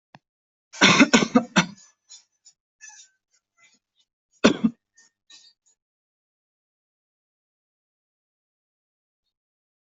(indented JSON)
{
  "expert_labels": [
    {
      "quality": "ok",
      "cough_type": "dry",
      "dyspnea": false,
      "wheezing": false,
      "stridor": false,
      "choking": false,
      "congestion": false,
      "nothing": true,
      "diagnosis": "COVID-19",
      "severity": "mild"
    }
  ],
  "age": 23,
  "gender": "male",
  "respiratory_condition": true,
  "fever_muscle_pain": true,
  "status": "COVID-19"
}